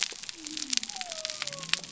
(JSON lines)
{"label": "biophony", "recorder": "SoundTrap 300"}